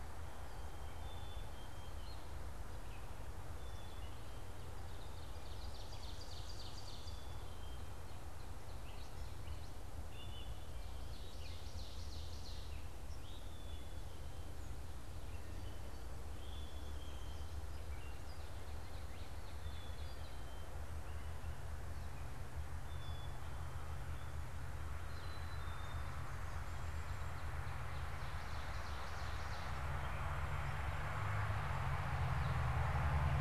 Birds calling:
Black-capped Chickadee (Poecile atricapillus)
Ovenbird (Seiurus aurocapilla)

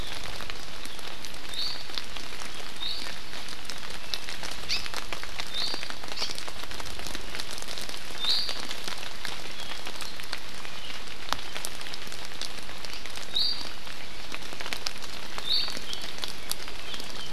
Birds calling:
Hawaii Amakihi (Chlorodrepanis virens)
Iiwi (Drepanis coccinea)

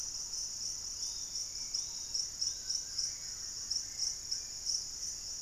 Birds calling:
Yellow-margined Flycatcher (Tolmomyias assimilis)
Wing-barred Piprites (Piprites chloris)
Hauxwell's Thrush (Turdus hauxwelli)

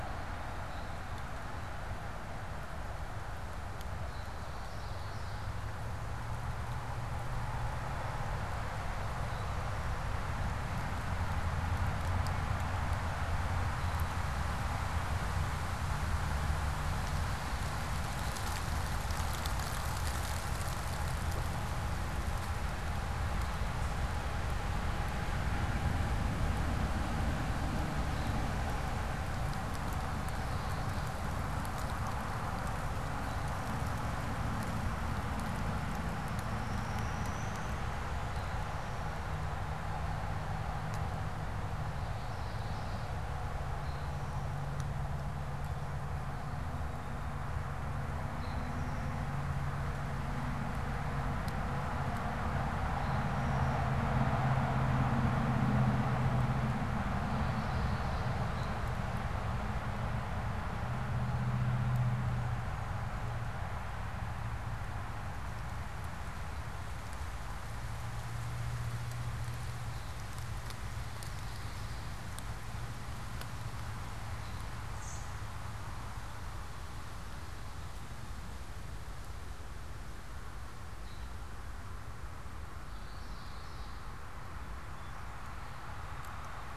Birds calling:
Common Yellowthroat (Geothlypis trichas)
Eastern Towhee (Pipilo erythrophthalmus)
unidentified bird

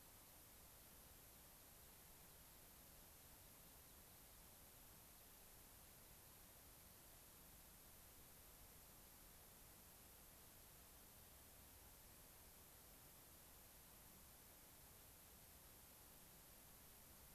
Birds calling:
American Pipit (Anthus rubescens)

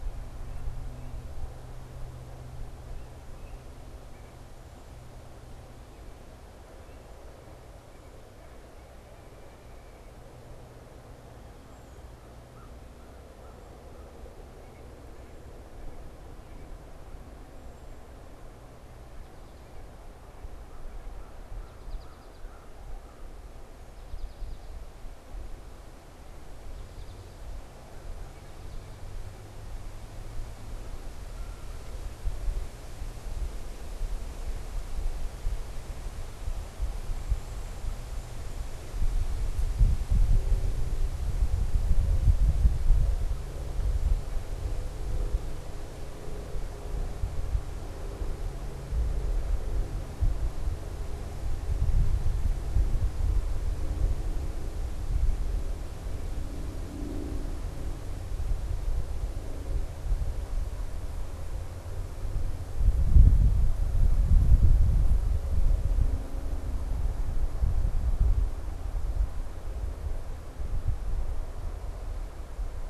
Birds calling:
Red-winged Blackbird (Agelaius phoeniceus)
unidentified bird
American Crow (Corvus brachyrhynchos)
White-breasted Nuthatch (Sitta carolinensis)
American Goldfinch (Spinus tristis)
Tufted Titmouse (Baeolophus bicolor)

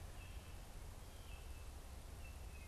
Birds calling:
Wood Thrush (Hylocichla mustelina)
unidentified bird

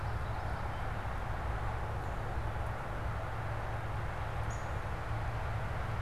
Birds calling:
unidentified bird

